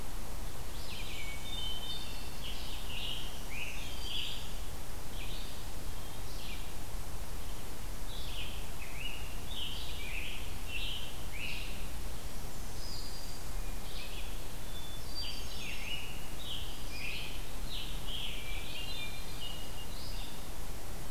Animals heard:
Hermit Thrush (Catharus guttatus), Scarlet Tanager (Piranga olivacea), Red-eyed Vireo (Vireo olivaceus), Black-throated Green Warbler (Setophaga virens)

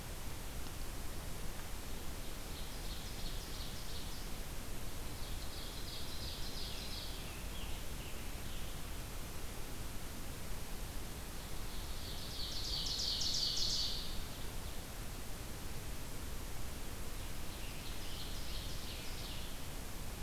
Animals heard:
Scarlet Tanager (Piranga olivacea), Ovenbird (Seiurus aurocapilla)

